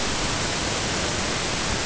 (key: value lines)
label: ambient
recorder: HydroMoth